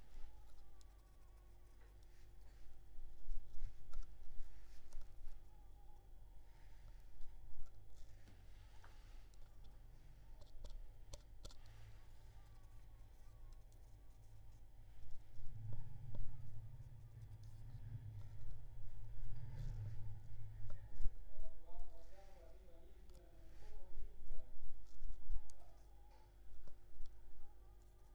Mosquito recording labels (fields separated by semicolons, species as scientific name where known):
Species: Culex pipiens complex; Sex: female; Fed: unfed; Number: one; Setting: cup